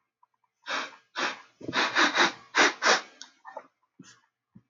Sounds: Sniff